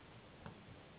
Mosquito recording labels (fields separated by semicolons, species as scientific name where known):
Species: Anopheles gambiae s.s.; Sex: female; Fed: unfed; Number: one; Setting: insect culture